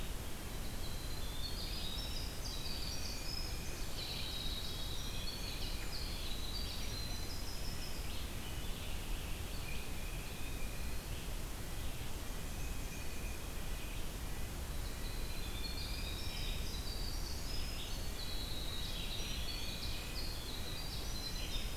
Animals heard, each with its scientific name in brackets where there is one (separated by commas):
Tufted Titmouse (Baeolophus bicolor), Red-eyed Vireo (Vireo olivaceus), Red-breasted Nuthatch (Sitta canadensis), Black-and-white Warbler (Mniotilta varia), Winter Wren (Troglodytes hiemalis), Eastern Wood-Pewee (Contopus virens)